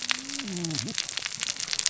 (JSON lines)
{"label": "biophony, cascading saw", "recorder": "SoundTrap 600 or HydroMoth"}